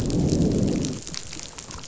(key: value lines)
label: biophony, growl
recorder: SoundTrap 500